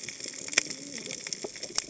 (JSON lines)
{"label": "biophony, cascading saw", "recorder": "HydroMoth"}